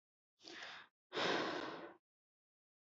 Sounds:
Sigh